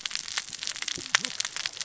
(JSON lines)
{"label": "biophony, cascading saw", "recorder": "SoundTrap 600 or HydroMoth"}